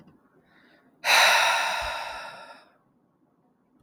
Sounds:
Sigh